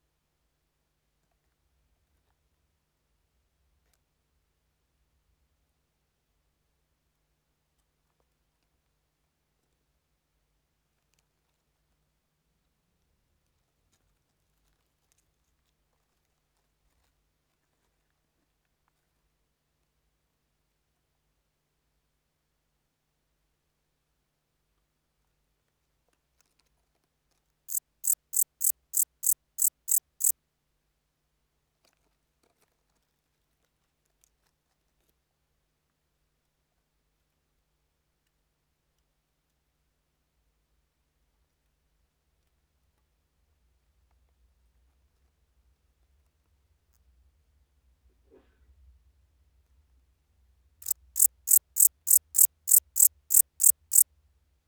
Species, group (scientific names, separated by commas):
Pholidoptera aptera, Orthoptera